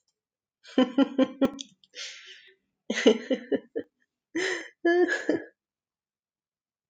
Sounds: Laughter